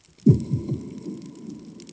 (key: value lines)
label: anthrophony, bomb
recorder: HydroMoth